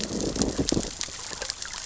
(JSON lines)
{"label": "biophony, growl", "recorder": "SoundTrap 600 or HydroMoth"}